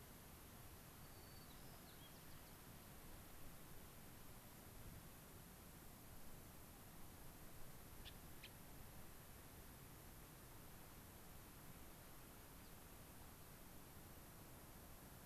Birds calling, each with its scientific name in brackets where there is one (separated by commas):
White-crowned Sparrow (Zonotrichia leucophrys), Gray-crowned Rosy-Finch (Leucosticte tephrocotis)